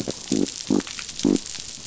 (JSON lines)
{"label": "biophony", "recorder": "SoundTrap 500"}